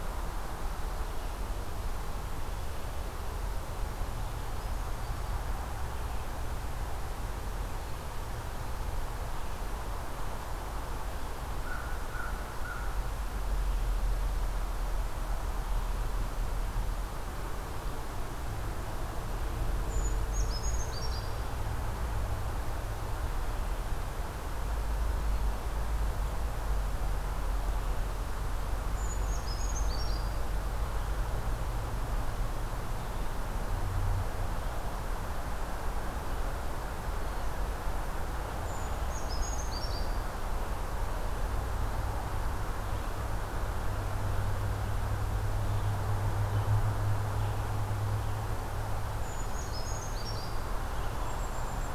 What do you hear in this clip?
American Crow, Brown Creeper, Red-eyed Vireo